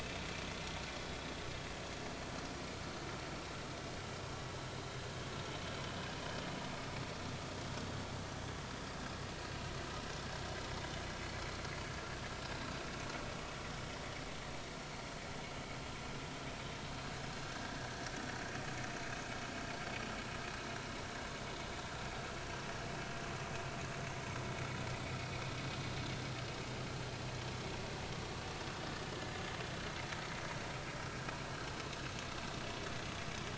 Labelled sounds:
17.4	17.7	vessel noise, 1.5 to 1.8 kHz

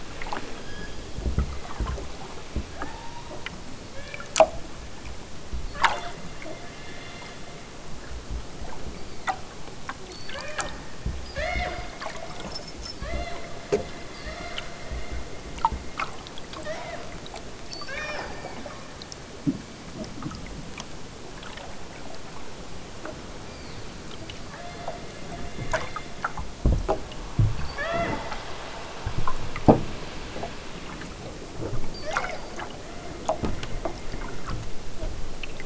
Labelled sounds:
0.5	1.8	killer whale, southern Alaska resident, 1.4 to 5.5 kHz
2.8	4.3	killer whale, southern Alaska resident, 0.60 to 5.4 kHz
5.8	6.3	killer whale, southern Alaska resident, 1.7 to 5.6 kHz
8.9	9.6	killer whale, southern Alaska resident, 1.0 to 5.0 kHz
10.0	10.8	killer whale, southern Alaska resident, 0.37 to 4.7 kHz
11.1	12.0	killer whale, southern Alaska resident, 0.28 to 7.3 kHz
12.9	13.4	killer whale, southern Alaska resident, 0.41 to 4.5 kHz
14.2	14.7	killer whale, southern Alaska resident, 0.37 to 6.1 kHz
16.6	17.1	killer whale, southern Alaska resident, 0.50 to 5.9 kHz
17.6	18.9	killer whale, southern Alaska resident, 0.32 to 6.7 kHz
23.4	24.0	killer whale, southern Alaska resident, 0.92 to 6.7 kHz
24.5	26.6	killer whale, southern Alaska resident, 0.32 to 5.4 kHz
27.6	28.3	killer whale, southern Alaska resident, 0.37 to 5.3 kHz
32.0	33.2	killer whale, southern Alaska resident, 0.50 to 5.6 kHz

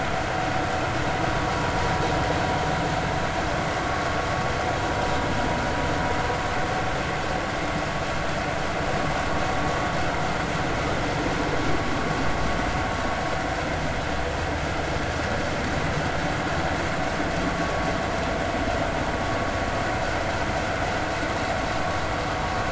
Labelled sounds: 17.5	17.8	vessel noise, 1.1 to 1.2 kHz

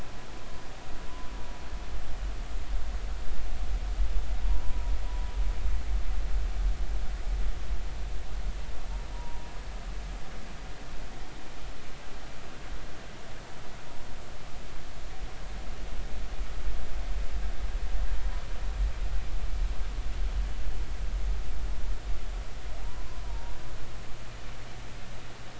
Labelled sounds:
4.5	4.9	humpback whale, 0.93 to 1.0 kHz
9.1	9.4	humpback whale, 0.90 to 0.99 kHz
22.8	23.6	humpback whale, 0.86 to 1.1 kHz

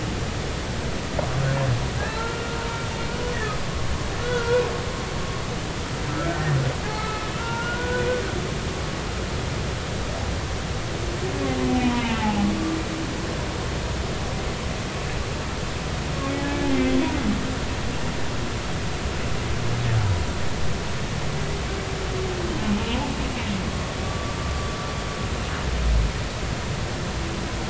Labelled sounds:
2.1	2.6	humpback whale, 0.83 to 4.2 kHz
4.2	4.6	humpback whale, 1.3 to 1.5 kHz
6.1	8.1	humpback whale, 0.80 to 1.6 kHz
12.2	12.5	humpback whale, 0.80 to 0.93 kHz
16.7	17.1	humpback whale, 2.0 to 3.5 kHz
22.6	23.0	humpback whale, 0.83 to 2.7 kHz
24.0	24.4	humpback whale, 1.1 to 1.2 kHz

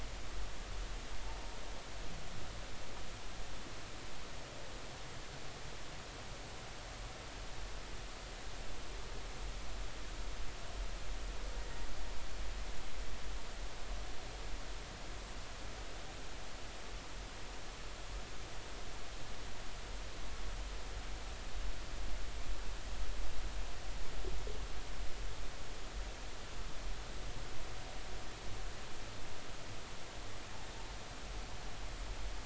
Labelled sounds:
1.2	1.6	humpback whale, 0.86 to 0.99 kHz

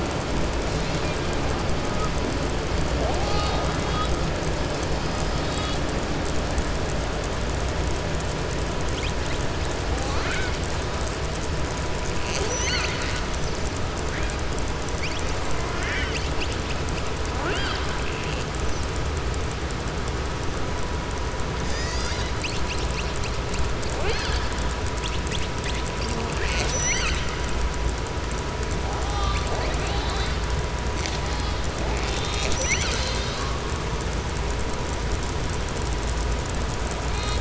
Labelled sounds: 0.7	1.2	killer whale, southern resident, 2.2 to 5.0 kHz
9.9	10.5	killer whale, southern resident, 0.56 to 4.7 kHz
15.6	16.5	killer whale, southern resident, 1.0 to 7.8 kHz
26.1	27.3	killer whale, southern resident, 0.56 to 7.9 kHz
29.0	30.3	killer whale, southern resident, 0.48 to 4.8 kHz

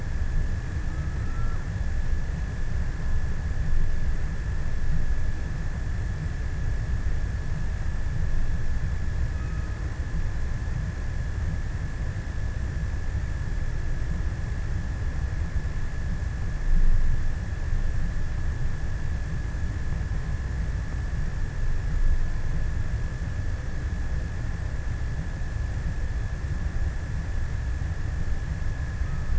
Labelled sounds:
0.5	1.9	killer whale, offshore, 0.75 to 2.0 kHz
8.9	10.6	killer whale, offshore, 0.48 to 1.8 kHz

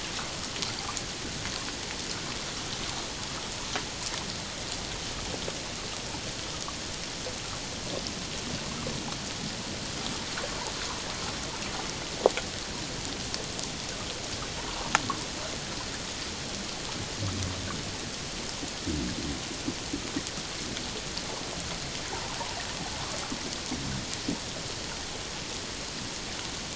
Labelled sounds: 14.6	14.9	water noise, 0.88 to 1.2 kHz

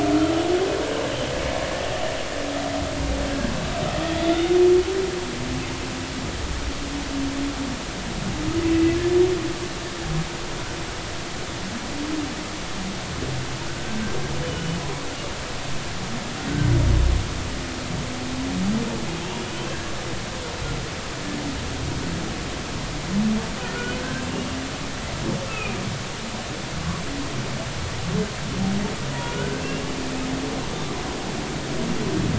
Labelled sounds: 4.2	4.6	humpback whale, 3.4 to 3.7 kHz
14.4	14.8	humpback whale, 2.9 to 3.0 kHz
19.7	19.9	humpback whale, 1.5 to 1.8 kHz
23.6	23.9	humpback whale, 1.3 to 1.5 kHz
25.5	25.8	humpback whale, 1.2 to 2.7 kHz
29.2	29.6	humpback whale, 1.4 to 1.6 kHz

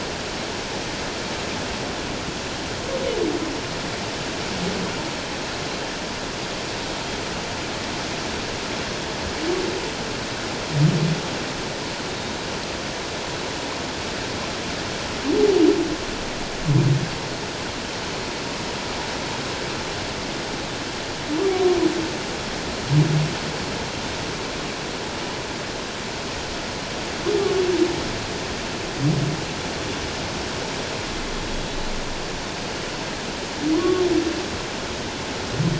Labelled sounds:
12.1	12.4	humpback whale, 3.7 to 3.8 kHz
33.7	34.0	humpback whale, 0.97 to 1.2 kHz

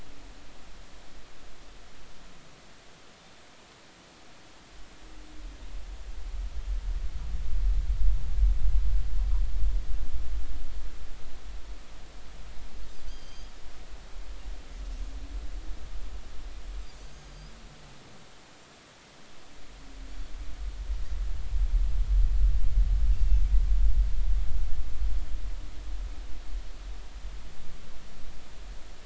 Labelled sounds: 13.1	13.5	Pacific white-sided dolphin, 6.2 to 6.5 kHz
14.1	14.5	Pacific white-sided dolphin, 2.9 to 5.0 kHz
17.0	17.5	Pacific white-sided dolphin, 4.7 to 6.5 kHz

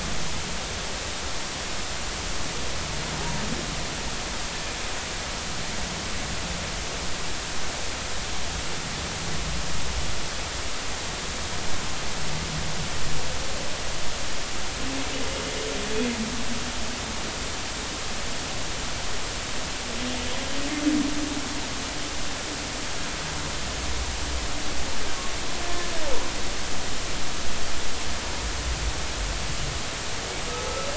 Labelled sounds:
3.2	3.4	humpback whale, 0.80 to 0.99 kHz
25.6	25.9	humpback whale, 1.7 to 1.8 kHz

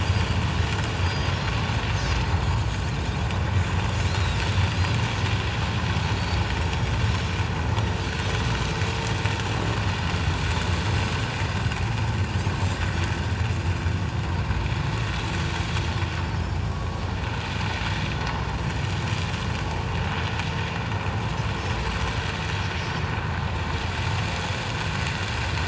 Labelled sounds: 0.0	0.4	Pacific white-sided dolphin, 4.5 to 4.9 kHz
1.0	1.3	Pacific white-sided dolphin, 4.6 to 6.5 kHz
4.0	4.4	Pacific white-sided dolphin, 3.6 to 4.3 kHz
7.0	7.4	Pacific white-sided dolphin, 5.3 to 5.6 kHz
12.5	12.8	Pacific white-sided dolphin, 7.3 to 7.6 kHz

